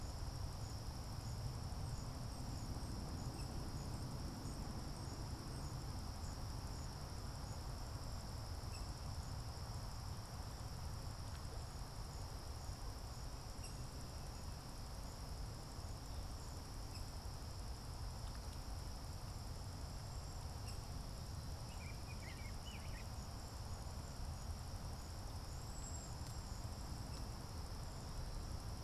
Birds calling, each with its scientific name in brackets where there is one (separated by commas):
Cedar Waxwing (Bombycilla cedrorum), Rose-breasted Grosbeak (Pheucticus ludovicianus)